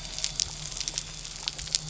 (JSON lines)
{"label": "anthrophony, boat engine", "recorder": "SoundTrap 300"}